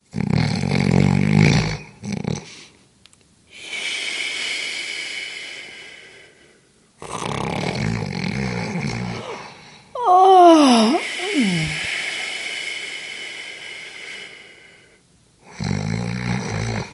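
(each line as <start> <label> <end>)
0.0 Snoring loudly. 2.9
3.1 Breathing out through the mouth. 6.9
6.9 Snoring loudly. 9.8
9.9 A person yawning. 11.2
11.3 Air is being released from the mouth. 15.5
15.5 Snoring loudly. 16.9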